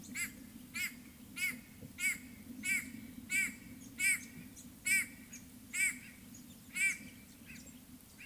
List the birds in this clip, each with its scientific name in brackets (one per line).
White-bellied Go-away-bird (Corythaixoides leucogaster)